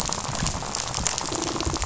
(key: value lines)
label: biophony, rattle
recorder: SoundTrap 500